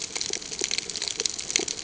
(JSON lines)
{"label": "ambient", "recorder": "HydroMoth"}